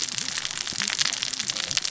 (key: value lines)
label: biophony, cascading saw
recorder: SoundTrap 600 or HydroMoth